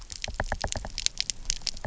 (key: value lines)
label: biophony, knock
recorder: SoundTrap 300